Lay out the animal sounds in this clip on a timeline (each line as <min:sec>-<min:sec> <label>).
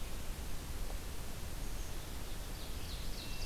0:02.1-0:03.5 Ovenbird (Seiurus aurocapilla)